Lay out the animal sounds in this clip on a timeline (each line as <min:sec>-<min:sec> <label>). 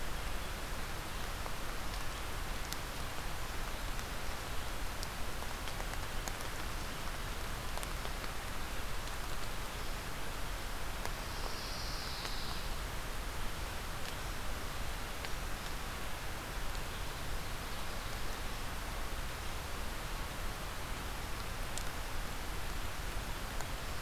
0:10.9-0:12.7 Pine Warbler (Setophaga pinus)